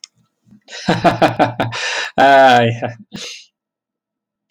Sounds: Laughter